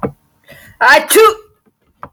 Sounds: Sneeze